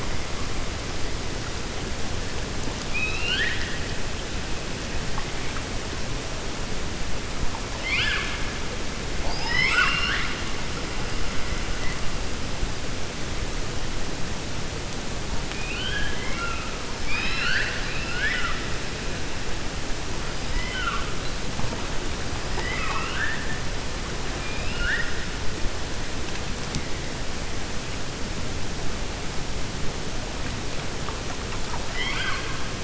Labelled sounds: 2.8	3.8	killer whale, 1.4 to 5.3 kHz
7.7	8.4	killer whale, 1.2 to 5.3 kHz
9.1	10.4	killer whale, 0.72 to 7.6 kHz
15.5	16.7	killer whale, 1.0 to 3.4 kHz
22.4	23.5	killer whale, 0.45 to 3.8 kHz
24.3	25.2	killer whale, 1.4 to 4.3 kHz
31.9	32.5	killer whale, 1.0 to 4.9 kHz

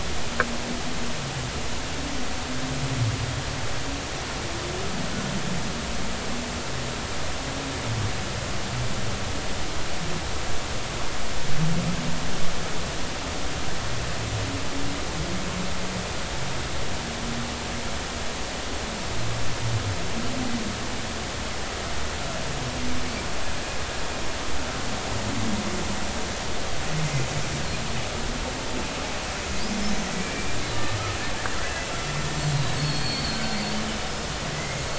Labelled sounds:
30.2	30.6	killer whale, Bigg's (transient), 2.2 to 2.4 kHz
31.7	33.6	killer whale, Bigg's (transient), 1.5 to 7.5 kHz
34.5	34.8	killer whale, Bigg's (transient), 1.9 to 2.2 kHz

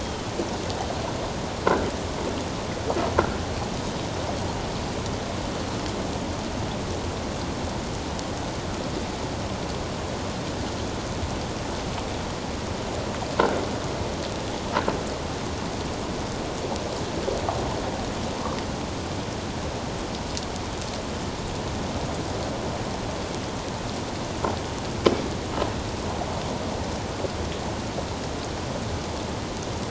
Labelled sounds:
0.0	0.3	humpback whale, 3.0 to 3.3 kHz

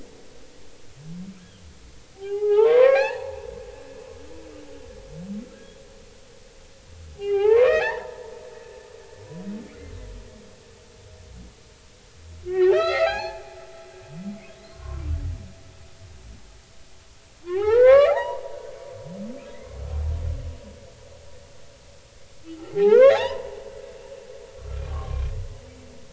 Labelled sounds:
2.1	3.4	humpback whale, 0.80 to 6.1 kHz
7.2	8.3	humpback whale, 0.80 to 5.6 kHz
9.6	9.9	humpback whale, 2.0 to 2.4 kHz
12.5	13.4	humpback whale, 0.80 to 5.2 kHz
14.7	15.1	humpback whale, 0.96 to 1.2 kHz
17.4	18.6	humpback whale, 0.80 to 4.1 kHz
19.5	19.8	humpback whale, 1.9 to 2.2 kHz
22.7	23.6	humpback whale, 0.80 to 4.1 kHz
24.6	25.3	humpback whale, 0.99 to 2.5 kHz

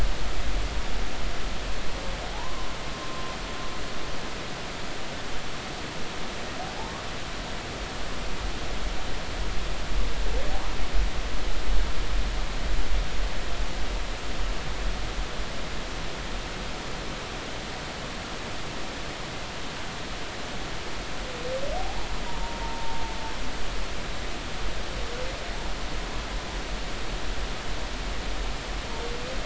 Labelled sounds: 2.3	2.7	humpback whale, 0.80 to 1.2 kHz
3.0	3.4	humpback whale, 0.99 to 1.1 kHz
22.2	23.0	humpback whale, 0.86 to 0.99 kHz

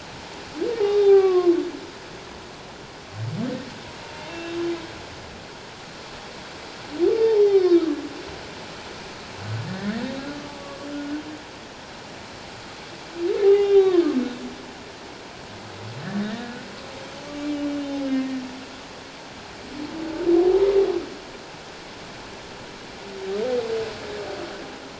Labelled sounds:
0.9	1.5	humpback whale, 0.78 to 3.8 kHz
4.3	4.6	humpback whale, 2.6 to 2.8 kHz
7.2	7.4	humpback whale, 0.78 to 0.94 kHz
10.4	10.9	humpback whale, 1.1 to 1.2 kHz
13.4	14.1	humpback whale, 0.78 to 3.7 kHz
16.0	17.5	humpback whale, 1.1 to 1.9 kHz
17.9	18.4	humpback whale, 1.8 to 5.3 kHz

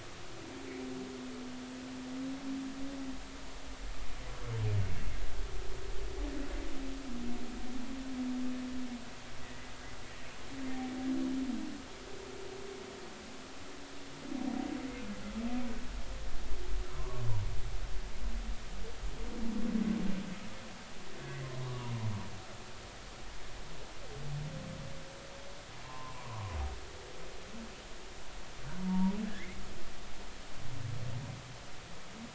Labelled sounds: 17.0	17.2	humpback whale, 0.99 to 1.2 kHz
25.8	26.6	humpback whale, 0.86 to 1.2 kHz
28.8	29.6	humpback whale, 0.86 to 2.3 kHz

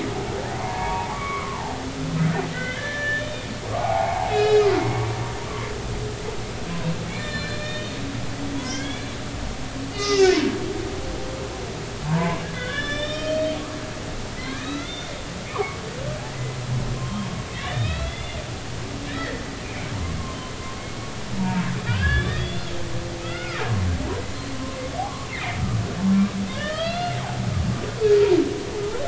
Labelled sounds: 0.5	1.7	humpback whale, 0.80 to 2.3 kHz
2.5	3.3	humpback whale, 1.4 to 3.2 kHz
3.8	5.2	humpback whale, 0.80 to 5.2 kHz
7.2	9.2	humpback whale, 0.93 to 7.3 kHz
9.9	10.5	humpback whale, 1.2 to 5.4 kHz
12.0	13.5	humpback whale, 0.83 to 5.7 kHz
14.4	15.8	humpback whale, 0.80 to 4.1 kHz
16.3	17.3	humpback whale, 0.93 to 2.1 kHz
17.6	18.4	humpback whale, 1.2 to 4.0 kHz
19.1	19.9	humpback whale, 1.6 to 2.5 kHz
21.4	22.7	humpback whale, 0.86 to 4.9 kHz
23.2	23.6	humpback whale, 1.2 to 2.9 kHz
25.3	25.6	humpback whale, 1.7 to 2.3 kHz
26.5	27.2	humpback whale, 1.2 to 4.3 kHz

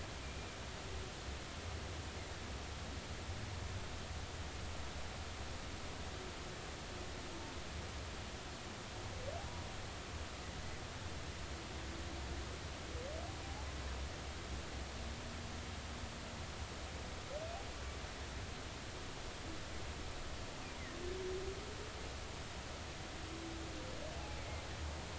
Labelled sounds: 24.2	24.4	humpback whale, 0.80 to 0.90 kHz

